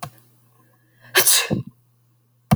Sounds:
Sneeze